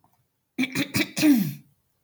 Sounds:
Throat clearing